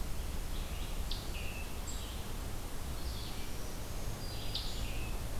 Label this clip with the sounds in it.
Red-eyed Vireo, Scarlet Tanager, Black-throated Green Warbler